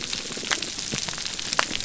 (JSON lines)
{"label": "biophony", "recorder": "SoundTrap 300"}